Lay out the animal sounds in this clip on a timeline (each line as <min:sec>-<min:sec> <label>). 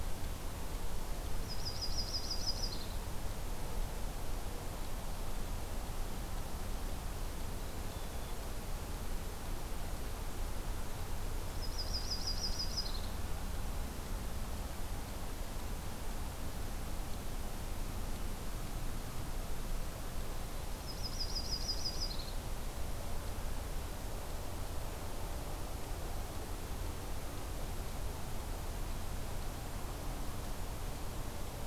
0:01.4-0:03.0 Yellow-rumped Warbler (Setophaga coronata)
0:11.4-0:13.1 Yellow-rumped Warbler (Setophaga coronata)
0:20.8-0:22.3 Yellow-rumped Warbler (Setophaga coronata)